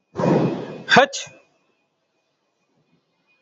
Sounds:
Sneeze